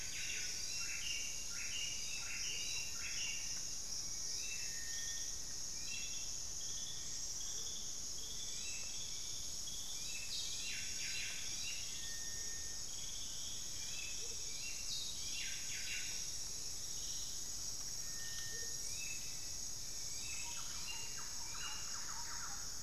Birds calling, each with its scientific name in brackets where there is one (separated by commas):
Amazonian Motmot (Momotus momota), Thrush-like Wren (Campylorhynchus turdinus), Hauxwell's Thrush (Turdus hauxwelli), Buff-breasted Wren (Cantorchilus leucotis)